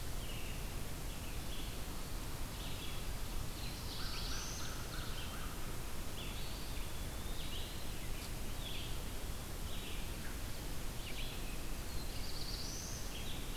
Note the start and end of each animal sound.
[0.00, 13.56] Red-eyed Vireo (Vireo olivaceus)
[3.28, 4.94] Black-throated Blue Warbler (Setophaga caerulescens)
[3.65, 5.51] American Crow (Corvus brachyrhynchos)
[6.16, 8.12] Eastern Wood-Pewee (Contopus virens)
[11.52, 13.21] Black-throated Blue Warbler (Setophaga caerulescens)

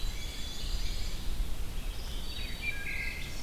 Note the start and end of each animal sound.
[0.00, 0.60] Black-capped Chickadee (Poecile atricapillus)
[0.00, 1.21] Black-and-white Warbler (Mniotilta varia)
[0.00, 1.40] Pine Warbler (Setophaga pinus)
[0.00, 3.42] Red-eyed Vireo (Vireo olivaceus)
[2.27, 3.30] Wood Thrush (Hylocichla mustelina)

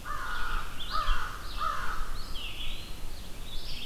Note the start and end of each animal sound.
[0.00, 2.47] American Crow (Corvus brachyrhynchos)
[0.00, 3.85] Red-eyed Vireo (Vireo olivaceus)
[2.22, 3.13] Eastern Wood-Pewee (Contopus virens)

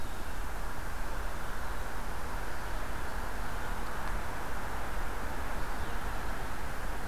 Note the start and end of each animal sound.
[0.00, 7.08] Red-eyed Vireo (Vireo olivaceus)

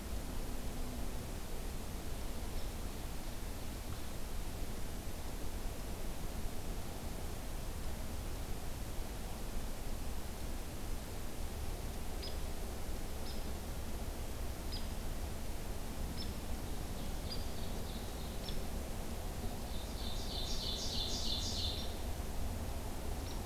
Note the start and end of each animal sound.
[12.16, 12.35] Hairy Woodpecker (Dryobates villosus)
[13.21, 13.39] Hairy Woodpecker (Dryobates villosus)
[14.66, 14.86] Hairy Woodpecker (Dryobates villosus)
[16.07, 16.30] Hairy Woodpecker (Dryobates villosus)
[16.67, 18.61] Ovenbird (Seiurus aurocapilla)
[17.24, 17.43] Hairy Woodpecker (Dryobates villosus)
[18.41, 18.55] Hairy Woodpecker (Dryobates villosus)
[19.49, 22.00] Ovenbird (Seiurus aurocapilla)
[21.75, 21.92] Hairy Woodpecker (Dryobates villosus)
[23.22, 23.39] Hairy Woodpecker (Dryobates villosus)

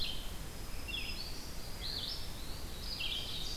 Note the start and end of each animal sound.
[0.00, 3.56] Red-eyed Vireo (Vireo olivaceus)
[0.34, 1.56] Black-throated Green Warbler (Setophaga virens)
[1.47, 2.82] Eastern Wood-Pewee (Contopus virens)
[2.90, 3.56] Ovenbird (Seiurus aurocapilla)

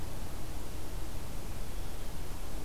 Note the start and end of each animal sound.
[1.55, 2.65] Blue Jay (Cyanocitta cristata)

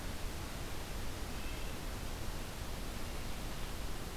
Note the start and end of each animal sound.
[1.03, 1.96] Blue Jay (Cyanocitta cristata)

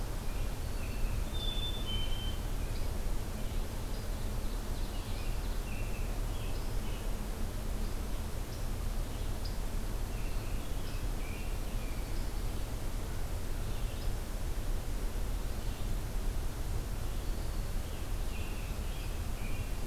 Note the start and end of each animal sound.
[0.00, 19.87] Red-eyed Vireo (Vireo olivaceus)
[0.17, 2.94] American Robin (Turdus migratorius)
[0.39, 1.16] Black-throated Green Warbler (Setophaga virens)
[1.31, 2.48] Black-capped Chickadee (Poecile atricapillus)
[4.10, 5.64] Ovenbird (Seiurus aurocapilla)
[4.68, 7.13] American Robin (Turdus migratorius)
[9.92, 12.40] American Robin (Turdus migratorius)
[11.60, 12.71] Black-throated Green Warbler (Setophaga virens)
[17.11, 17.89] Black-throated Green Warbler (Setophaga virens)
[18.14, 19.81] American Robin (Turdus migratorius)

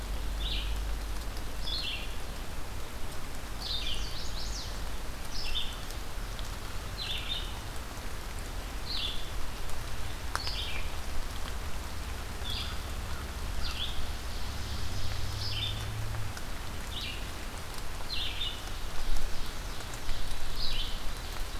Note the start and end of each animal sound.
[0.00, 21.08] Red-eyed Vireo (Vireo olivaceus)
[3.55, 5.08] Chestnut-sided Warbler (Setophaga pensylvanica)
[13.49, 15.64] Ovenbird (Seiurus aurocapilla)
[18.27, 20.68] Ovenbird (Seiurus aurocapilla)

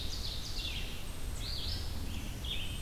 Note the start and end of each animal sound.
[0.00, 0.95] Ovenbird (Seiurus aurocapilla)
[0.00, 2.82] Red-eyed Vireo (Vireo olivaceus)
[0.93, 1.62] Black-capped Chickadee (Poecile atricapillus)

